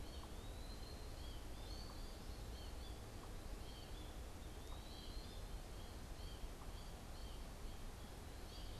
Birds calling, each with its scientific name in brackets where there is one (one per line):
American Goldfinch (Spinus tristis)